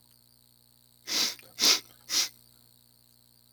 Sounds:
Sniff